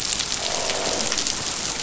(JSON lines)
{"label": "biophony, croak", "recorder": "SoundTrap 500"}